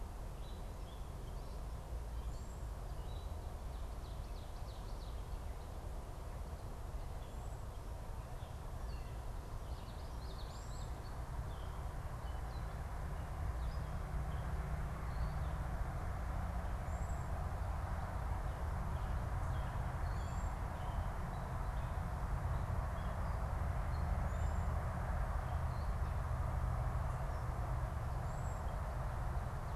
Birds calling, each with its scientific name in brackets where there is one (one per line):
Ovenbird (Seiurus aurocapilla)
Gray Catbird (Dumetella carolinensis)
Common Yellowthroat (Geothlypis trichas)
Cedar Waxwing (Bombycilla cedrorum)